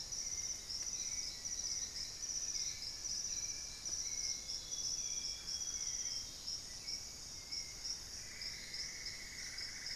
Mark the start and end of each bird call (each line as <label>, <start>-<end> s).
Elegant Woodcreeper (Xiphorhynchus elegans), 0.0-4.5 s
Hauxwell's Thrush (Turdus hauxwelli), 0.0-10.0 s
Amazonian Grosbeak (Cyanoloxia rothschildii), 4.2-6.7 s
Solitary Black Cacique (Cacicus solitarius), 5.2-6.2 s
Cinnamon-throated Woodcreeper (Dendrexetastes rufigula), 7.7-10.0 s